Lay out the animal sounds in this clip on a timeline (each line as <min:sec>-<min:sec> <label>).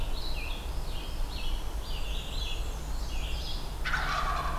0:00.0-0:04.6 Red-eyed Vireo (Vireo olivaceus)
0:00.5-0:01.8 Northern Parula (Setophaga americana)
0:01.7-0:03.6 Black-and-white Warbler (Mniotilta varia)
0:03.7-0:04.6 Wild Turkey (Meleagris gallopavo)